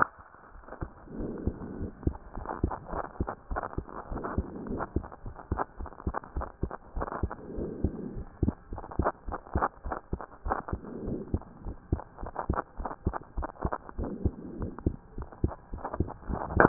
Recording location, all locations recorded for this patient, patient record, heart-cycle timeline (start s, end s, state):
pulmonary valve (PV)
aortic valve (AV)+pulmonary valve (PV)+tricuspid valve (TV)+mitral valve (MV)
#Age: Child
#Sex: Female
#Height: 142.0 cm
#Weight: 39.0 kg
#Pregnancy status: False
#Murmur: Absent
#Murmur locations: nan
#Most audible location: nan
#Systolic murmur timing: nan
#Systolic murmur shape: nan
#Systolic murmur grading: nan
#Systolic murmur pitch: nan
#Systolic murmur quality: nan
#Diastolic murmur timing: nan
#Diastolic murmur shape: nan
#Diastolic murmur grading: nan
#Diastolic murmur pitch: nan
#Diastolic murmur quality: nan
#Outcome: Normal
#Campaign: 2014 screening campaign
0.00	4.10	unannotated
4.10	4.22	S1
4.22	4.36	systole
4.36	4.46	S2
4.46	4.68	diastole
4.68	4.82	S1
4.82	4.94	systole
4.94	5.06	S2
5.06	5.26	diastole
5.26	5.34	S1
5.34	5.50	systole
5.50	5.62	S2
5.62	5.80	diastole
5.80	5.90	S1
5.90	6.06	systole
6.06	6.14	S2
6.14	6.36	diastole
6.36	6.46	S1
6.46	6.62	systole
6.62	6.70	S2
6.70	6.96	diastole
6.96	7.08	S1
7.08	7.22	systole
7.22	7.32	S2
7.32	7.56	diastole
7.56	7.70	S1
7.70	7.82	systole
7.82	7.92	S2
7.92	8.14	diastole
8.14	8.26	S1
8.26	8.42	systole
8.42	8.54	S2
8.54	8.72	diastole
8.72	8.82	S1
8.82	8.98	systole
8.98	9.08	S2
9.08	9.28	diastole
9.28	16.69	unannotated